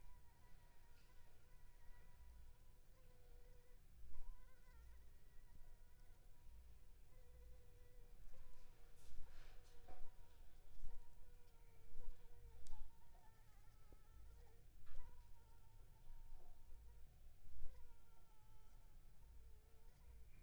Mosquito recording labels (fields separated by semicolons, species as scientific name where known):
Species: Anopheles funestus s.s.; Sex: female; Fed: unfed; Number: one; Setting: cup